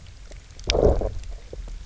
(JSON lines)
{"label": "biophony, low growl", "recorder": "SoundTrap 300"}